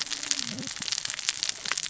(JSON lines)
{"label": "biophony, cascading saw", "recorder": "SoundTrap 600 or HydroMoth"}